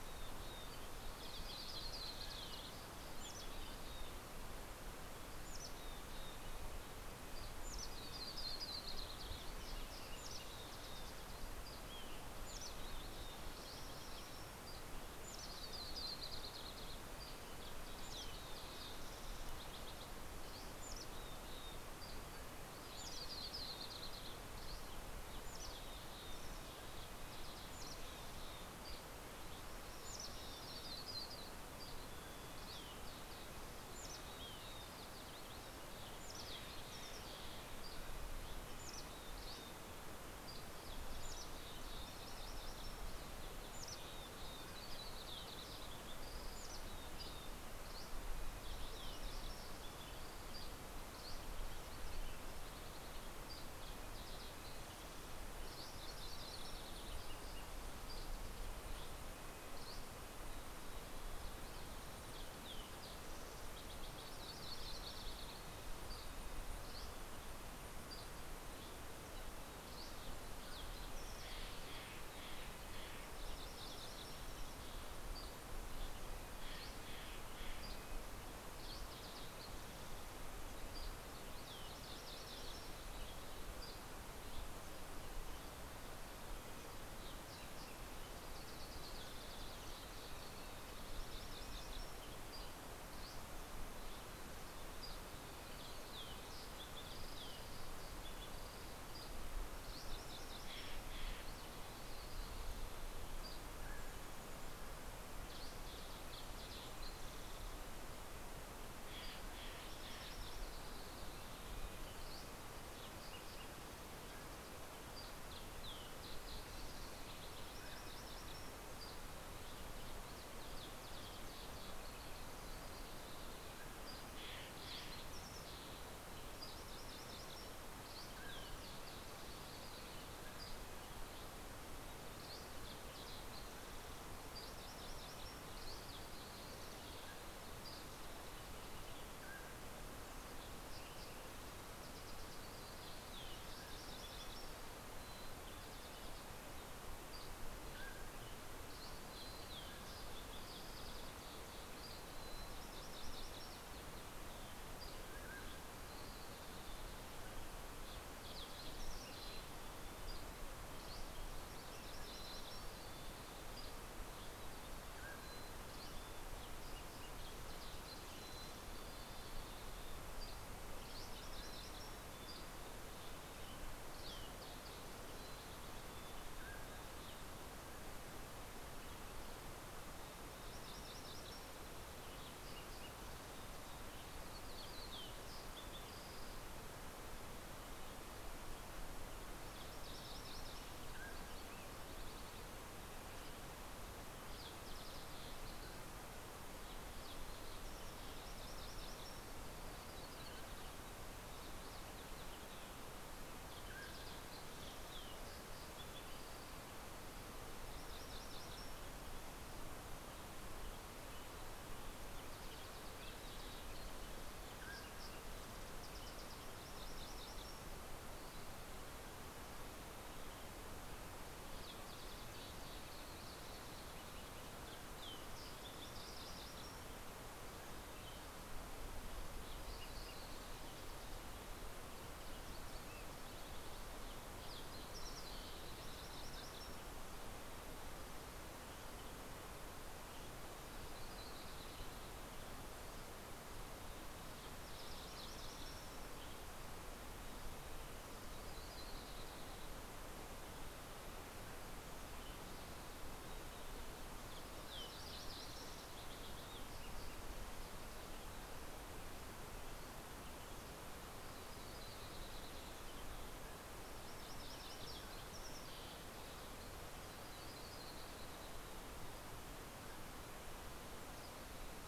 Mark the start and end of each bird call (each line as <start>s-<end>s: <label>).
0.0s-3.1s: Red-breasted Nuthatch (Sitta canadensis)
0.0s-13.2s: Mountain Chickadee (Poecile gambeli)
1.0s-4.0s: Yellow-rumped Warbler (Setophaga coronata)
1.6s-3.1s: Mountain Quail (Oreortyx pictus)
5.7s-9.1s: Red-breasted Nuthatch (Sitta canadensis)
7.3s-10.4s: Yellow-rumped Warbler (Setophaga coronata)
7.8s-13.3s: Green-tailed Towhee (Pipilo chlorurus)
14.3s-47.8s: Mountain Chickadee (Poecile gambeli)
14.7s-18.0s: Yellow-rumped Warbler (Setophaga coronata)
15.3s-28.9s: Red-breasted Nuthatch (Sitta canadensis)
16.7s-17.9s: Dusky Flycatcher (Empidonax oberholseri)
21.3s-23.7s: Mountain Quail (Oreortyx pictus)
21.6s-22.5s: Dusky Flycatcher (Empidonax oberholseri)
22.6s-25.3s: Yellow-rumped Warbler (Setophaga coronata)
24.4s-24.9s: Dusky Flycatcher (Empidonax oberholseri)
26.2s-27.7s: Green-tailed Towhee (Pipilo chlorurus)
27.9s-29.8s: Dusky Flycatcher (Empidonax oberholseri)
29.8s-32.3s: Yellow-rumped Warbler (Setophaga coronata)
31.4s-32.8s: Dusky Flycatcher (Empidonax oberholseri)
31.5s-51.1s: Red-breasted Nuthatch (Sitta canadensis)
32.9s-35.7s: Green-tailed Towhee (Pipilo chlorurus)
39.1s-40.8s: Dusky Flycatcher (Empidonax oberholseri)
44.1s-46.9s: Yellow-rumped Warbler (Setophaga coronata)
45.8s-48.6s: Dusky Flycatcher (Empidonax oberholseri)
49.6s-51.4s: Dusky Flycatcher (Empidonax oberholseri)
51.5s-54.5s: Green-tailed Towhee (Pipilo chlorurus)
53.0s-54.0s: Dusky Flycatcher (Empidonax oberholseri)
55.1s-57.4s: Yellow-rumped Warbler (Setophaga coronata)
57.1s-67.9s: Red-breasted Nuthatch (Sitta canadensis)
57.2s-68.2s: Green-tailed Towhee (Pipilo chlorurus)
57.6s-60.3s: Dusky Flycatcher (Empidonax oberholseri)
63.6s-65.7s: Yellow-rumped Warbler (Setophaga coronata)
65.8s-68.8s: Dusky Flycatcher (Empidonax oberholseri)
69.2s-70.8s: Dusky Flycatcher (Empidonax oberholseri)
70.2s-71.1s: Mountain Quail (Oreortyx pictus)
70.2s-79.6s: Red-breasted Nuthatch (Sitta canadensis)
71.0s-73.8s: Steller's Jay (Cyanocitta stelleri)
72.9s-75.0s: Yellow-rumped Warbler (Setophaga coronata)
75.2s-78.1s: Dusky Flycatcher (Empidonax oberholseri)
76.2s-78.6s: Steller's Jay (Cyanocitta stelleri)
78.6s-83.2s: Yellow-rumped Warbler (Setophaga coronata)
80.3s-84.8s: Dusky Flycatcher (Empidonax oberholseri)
81.4s-93.2s: Red-breasted Nuthatch (Sitta canadensis)
85.3s-94.0s: Yellow-rumped Warbler (Setophaga coronata)
92.1s-94.0s: Dusky Flycatcher (Empidonax oberholseri)
94.6s-95.5s: Dusky Flycatcher (Empidonax oberholseri)
95.2s-100.2s: Green-tailed Towhee (Pipilo chlorurus)
95.6s-97.1s: Red-breasted Nuthatch (Sitta canadensis)
98.9s-99.6s: Dusky Flycatcher (Empidonax oberholseri)
99.7s-101.7s: Yellow-rumped Warbler (Setophaga coronata)
100.4s-101.7s: Steller's Jay (Cyanocitta stelleri)
103.2s-104.2s: Dusky Flycatcher (Empidonax oberholseri)
103.4s-104.6s: Mountain Quail (Oreortyx pictus)
103.7s-107.5s: Mountain Chickadee (Poecile gambeli)
105.0s-108.4s: Green-tailed Towhee (Pipilo chlorurus)
108.9s-110.8s: Steller's Jay (Cyanocitta stelleri)
109.5s-112.1s: Yellow-rumped Warbler (Setophaga coronata)
111.2s-112.8s: Red-breasted Nuthatch (Sitta canadensis)
112.1s-112.9s: Dusky Flycatcher (Empidonax oberholseri)
114.1s-114.7s: Mountain Quail (Oreortyx pictus)
114.9s-115.4s: Dusky Flycatcher (Empidonax oberholseri)
115.5s-134.0s: Green-tailed Towhee (Pipilo chlorurus)
115.9s-118.9s: Red-breasted Nuthatch (Sitta canadensis)
117.3s-118.8s: Yellow-rumped Warbler (Setophaga coronata)
117.5s-118.2s: Mountain Quail (Oreortyx pictus)
118.8s-119.3s: Dusky Flycatcher (Empidonax oberholseri)
123.6s-124.3s: Mountain Quail (Oreortyx pictus)
123.7s-124.3s: Dusky Flycatcher (Empidonax oberholseri)
123.8s-125.9s: Steller's Jay (Cyanocitta stelleri)
126.2s-126.9s: Dusky Flycatcher (Empidonax oberholseri)
126.4s-128.0s: Yellow-rumped Warbler (Setophaga coronata)
127.6s-128.5s: Dusky Flycatcher (Empidonax oberholseri)
128.1s-129.2s: Mountain Quail (Oreortyx pictus)
130.1s-130.8s: Mountain Quail (Oreortyx pictus)
130.2s-131.0s: Dusky Flycatcher (Empidonax oberholseri)
131.9s-132.8s: Dusky Flycatcher (Empidonax oberholseri)
134.5s-135.5s: Yellow-rumped Warbler (Setophaga coronata)
137.0s-141.2s: Mountain Quail (Oreortyx pictus)
137.2s-138.4s: Dusky Flycatcher (Empidonax oberholseri)
139.4s-154.1s: Green-tailed Towhee (Pipilo chlorurus)
141.8s-145.8s: Yellow-rumped Warbler (Setophaga coronata)
142.4s-150.3s: Red-breasted Nuthatch (Sitta canadensis)
143.4s-144.4s: Mountain Quail (Oreortyx pictus)
144.7s-147.3s: Mountain Chickadee (Poecile gambeli)
146.5s-149.4s: Dusky Flycatcher (Empidonax oberholseri)
147.7s-150.9s: Mountain Quail (Oreortyx pictus)
149.1s-151.1s: Mountain Chickadee (Poecile gambeli)
151.5s-155.1s: Yellow-rumped Warbler (Setophaga coronata)
151.9s-153.9s: Mountain Chickadee (Poecile gambeli)
154.7s-155.5s: Dusky Flycatcher (Empidonax oberholseri)
155.1s-156.0s: Mountain Quail (Oreortyx pictus)
155.8s-157.9s: Mountain Chickadee (Poecile gambeli)
157.6s-160.3s: Green-tailed Towhee (Pipilo chlorurus)
159.1s-161.0s: Mountain Chickadee (Poecile gambeli)
160.0s-160.9s: Dusky Flycatcher (Empidonax oberholseri)
161.1s-163.8s: Yellow-rumped Warbler (Setophaga coronata)
161.5s-164.2s: Mountain Chickadee (Poecile gambeli)
163.4s-164.5s: Dusky Flycatcher (Empidonax oberholseri)
164.7s-166.0s: Mountain Quail (Oreortyx pictus)
165.0s-169.4s: Mountain Chickadee (Poecile gambeli)
165.1s-170.2s: Green-tailed Towhee (Pipilo chlorurus)
169.4s-170.9s: Dusky Flycatcher (Empidonax oberholseri)
169.9s-172.9s: Yellow-rumped Warbler (Setophaga coronata)
171.2s-174.3s: Mountain Chickadee (Poecile gambeli)
172.4s-173.2s: Dusky Flycatcher (Empidonax oberholseri)
175.0s-176.0s: Mountain Chickadee (Poecile gambeli)
175.9s-178.0s: Mountain Quail (Oreortyx pictus)
179.6s-182.1s: Yellow-rumped Warbler (Setophaga coronata)
182.3s-187.9s: Green-tailed Towhee (Pipilo chlorurus)
188.9s-192.7s: Mountain Quail (Oreortyx pictus)
192.2s-197.9s: Green-tailed Towhee (Pipilo chlorurus)
198.2s-200.2s: Mountain Quail (Oreortyx pictus)
201.1s-206.8s: Green-tailed Towhee (Pipilo chlorurus)
203.7s-204.7s: Mountain Quail (Oreortyx pictus)
207.4s-209.6s: Mountain Quail (Oreortyx pictus)
211.5s-216.5s: Green-tailed Towhee (Pipilo chlorurus)
214.3s-215.5s: Mountain Quail (Oreortyx pictus)
215.7s-219.1s: Yellow-rumped Warbler (Setophaga coronata)
220.0s-226.9s: Green-tailed Towhee (Pipilo chlorurus)
224.9s-227.8s: Yellow-rumped Warbler (Setophaga coronata)
227.8s-228.7s: Dusky Flycatcher (Empidonax oberholseri)
229.4s-237.8s: Green-tailed Towhee (Pipilo chlorurus)
235.0s-237.8s: Yellow-rumped Warbler (Setophaga coronata)
238.4s-242.8s: Western Tanager (Piranga ludoviciana)
240.5s-243.3s: Yellow-rumped Warbler (Setophaga coronata)
243.8s-246.7s: Yellow-rumped Warbler (Setophaga coronata)
247.3s-250.6s: Yellow-rumped Warbler (Setophaga coronata)
251.7s-257.0s: Green-tailed Towhee (Pipilo chlorurus)
254.0s-256.7s: Yellow-rumped Warbler (Setophaga coronata)
260.5s-269.7s: Yellow-rumped Warbler (Setophaga coronata)
263.1s-264.9s: Mountain Quail (Oreortyx pictus)
264.1s-268.8s: Green-tailed Towhee (Pipilo chlorurus)
269.4s-271.3s: Mountain Quail (Oreortyx pictus)
271.0s-272.0s: Dusky Flycatcher (Empidonax oberholseri)